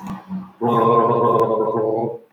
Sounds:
Throat clearing